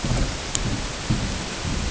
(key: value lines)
label: ambient
recorder: HydroMoth